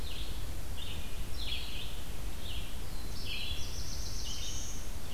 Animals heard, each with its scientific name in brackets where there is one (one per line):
Red-eyed Vireo (Vireo olivaceus)
Black-throated Blue Warbler (Setophaga caerulescens)